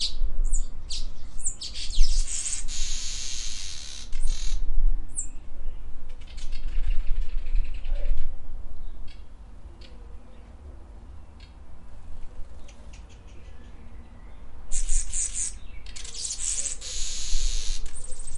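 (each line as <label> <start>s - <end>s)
A bird chirps. 0.0s - 5.7s
A bird flapping its wings in the distance. 6.2s - 9.1s
Birds chirp slowly in the background. 9.3s - 14.4s
A bird chirps. 14.6s - 18.4s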